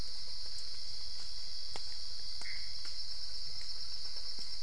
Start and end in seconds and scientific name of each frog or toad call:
2.3	2.9	Pithecopus azureus